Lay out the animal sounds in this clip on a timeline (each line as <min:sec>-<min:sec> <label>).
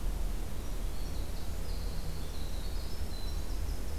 0:00.4-0:04.0 Winter Wren (Troglodytes hiemalis)